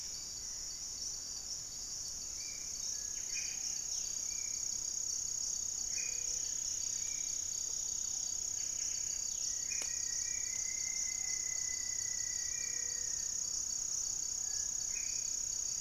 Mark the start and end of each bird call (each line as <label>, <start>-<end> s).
Hauxwell's Thrush (Turdus hauxwelli), 0.0-0.9 s
Black-faced Antthrush (Formicarius analis), 0.0-15.8 s
Spot-winged Antshrike (Pygiptila stellaris), 0.0-15.8 s
Cinereous Tinamou (Crypturellus cinereus), 2.7-3.5 s
Buff-breasted Wren (Cantorchilus leucotis), 3.0-3.8 s
Plumbeous Pigeon (Patagioenas plumbea), 3.3-4.4 s
Gray-fronted Dove (Leptotila rufaxilla), 5.7-6.6 s
Striped Woodcreeper (Xiphorhynchus obsoletus), 6.0-8.7 s
Ruddy Pigeon (Patagioenas subvinacea), 7.8-15.8 s
Cinereous Tinamou (Crypturellus cinereus), 8.1-9.6 s
Buff-breasted Wren (Cantorchilus leucotis), 8.4-9.3 s
Rufous-fronted Antthrush (Formicarius rufifrons), 9.2-13.4 s
Gray-fronted Dove (Leptotila rufaxilla), 12.5-13.4 s